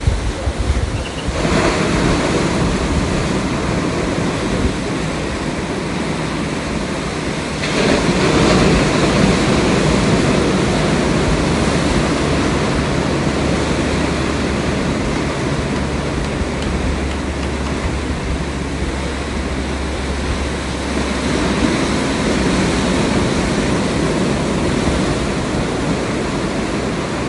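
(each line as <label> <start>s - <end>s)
Waves crash against the shore. 0.0s - 0.9s
A bird sings. 0.9s - 1.3s
Waves hitting the shore loudly. 1.4s - 4.8s
Waves continuously crashing. 4.8s - 7.6s
A large wave hits the shore. 7.7s - 15.3s
Wood creaks. 17.2s - 18.4s
Waves crash loudly against the shore. 20.7s - 26.0s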